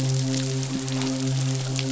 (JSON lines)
{"label": "biophony, midshipman", "recorder": "SoundTrap 500"}